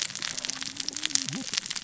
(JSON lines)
{"label": "biophony, cascading saw", "recorder": "SoundTrap 600 or HydroMoth"}